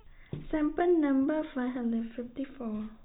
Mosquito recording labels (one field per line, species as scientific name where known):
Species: no mosquito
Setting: cup